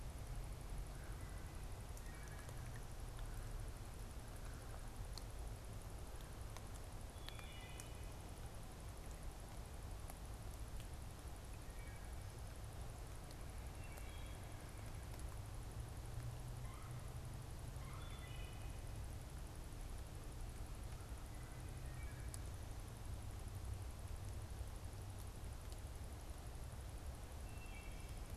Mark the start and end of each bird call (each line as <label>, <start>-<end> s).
Red-bellied Woodpecker (Melanerpes carolinus), 0.7-4.8 s
Wood Thrush (Hylocichla mustelina), 1.8-2.6 s
Wood Thrush (Hylocichla mustelina), 7.0-8.3 s
Wood Thrush (Hylocichla mustelina), 11.4-12.3 s
Wood Thrush (Hylocichla mustelina), 13.6-14.6 s
Red-bellied Woodpecker (Melanerpes carolinus), 16.3-18.2 s
Wood Thrush (Hylocichla mustelina), 17.8-18.7 s
Wood Thrush (Hylocichla mustelina), 21.3-22.4 s
Wood Thrush (Hylocichla mustelina), 27.2-28.3 s